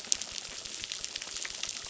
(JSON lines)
{"label": "biophony, crackle", "recorder": "SoundTrap 600"}